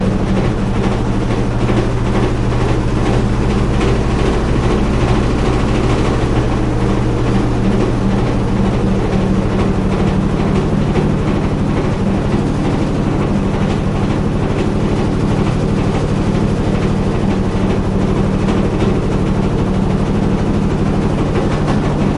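A washing machine is operating steadily, loudly rotating clothes. 0.0 - 22.2

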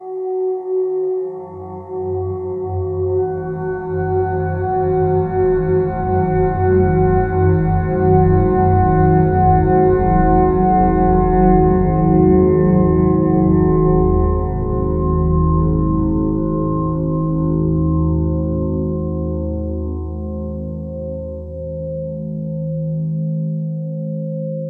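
Ambient droning with multiple tones gradually increasing in volume with reverb. 0.0 - 24.6

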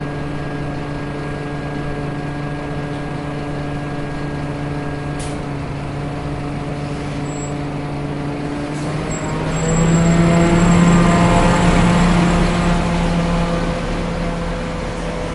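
A vehicle is travelling. 0.0 - 15.3

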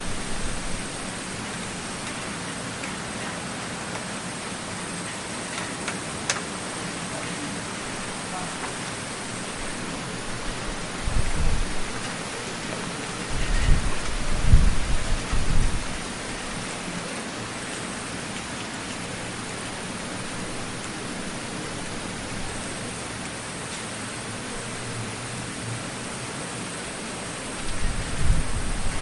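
Crickets chirping quietly in a non-periodic manner nearby. 0.0 - 29.0
Rain droplets quietly hitting a surface in an irregular pattern. 5.3 - 8.0

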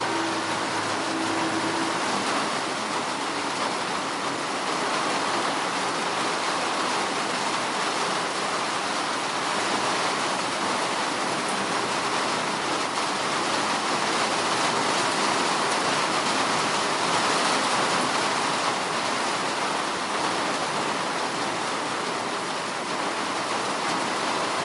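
Rainstorm pounding on the roof. 0.0 - 24.6

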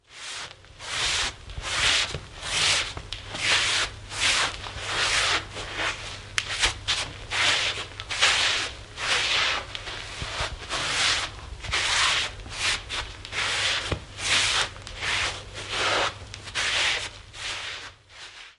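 A singular slide across the carpet. 0.1 - 12.3
Two slides across the carpet. 12.5 - 13.2
A singular slide across the carpet. 13.3 - 18.6

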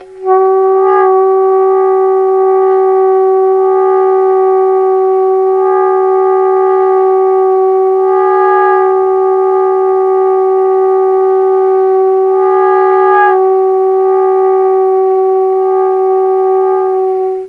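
A horn sounds continuously. 0.0 - 17.5

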